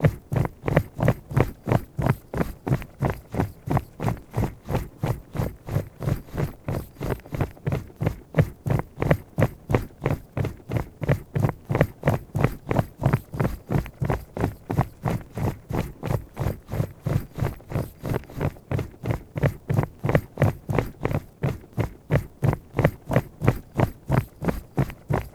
Is the sound repetitive?
yes